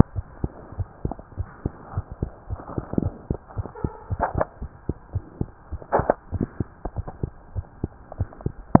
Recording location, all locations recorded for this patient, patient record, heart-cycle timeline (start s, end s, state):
pulmonary valve (PV)
aortic valve (AV)+pulmonary valve (PV)+tricuspid valve (TV)+mitral valve (MV)
#Age: Child
#Sex: Male
#Height: 94.0 cm
#Weight: 13.5 kg
#Pregnancy status: False
#Murmur: Absent
#Murmur locations: nan
#Most audible location: nan
#Systolic murmur timing: nan
#Systolic murmur shape: nan
#Systolic murmur grading: nan
#Systolic murmur pitch: nan
#Systolic murmur quality: nan
#Diastolic murmur timing: nan
#Diastolic murmur shape: nan
#Diastolic murmur grading: nan
#Diastolic murmur pitch: nan
#Diastolic murmur quality: nan
#Outcome: Normal
#Campaign: 2015 screening campaign
0.00	0.14	diastole
0.14	0.28	S1
0.28	0.40	systole
0.40	0.54	S2
0.54	0.76	diastole
0.76	0.88	S1
0.88	1.02	systole
1.02	1.16	S2
1.16	1.35	diastole
1.35	1.50	S1
1.50	1.62	systole
1.62	1.76	S2
1.76	1.91	diastole
1.91	2.04	S1
2.04	2.18	systole
2.18	2.30	S2
2.30	2.48	diastole
2.48	2.60	S1
2.60	2.74	systole
2.74	2.86	S2
2.86	3.02	diastole
3.02	3.14	S1
3.14	3.24	systole
3.24	3.38	S2
3.38	3.56	diastole
3.56	3.70	S1
3.70	3.82	systole
3.82	3.92	S2
3.92	4.09	diastole
4.09	4.20	S1
4.20	4.32	systole
4.32	4.46	S2
4.46	4.59	diastole
4.59	4.72	S1
4.72	4.86	systole
4.86	4.96	S2
4.96	5.11	diastole
5.11	5.24	S1
5.24	5.38	systole
5.38	5.48	S2
5.48	5.70	diastole
5.70	5.82	S1
5.82	5.94	systole
5.94	6.10	S2
6.10	6.30	diastole
6.30	6.48	S1
6.48	6.58	systole
6.58	6.72	S2
6.72	6.93	diastole
6.93	7.06	S1
7.06	7.20	systole
7.20	7.32	S2
7.32	7.52	diastole
7.52	7.66	S1
7.66	7.80	systole
7.80	7.96	S2
7.96	8.18	diastole
8.18	8.30	S1
8.30	8.41	systole
8.41	8.54	S2